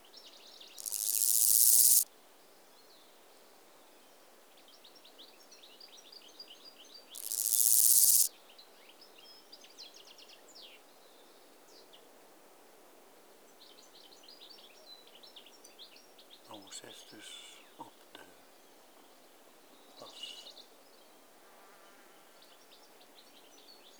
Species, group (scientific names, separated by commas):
Omocestus raymondi, Orthoptera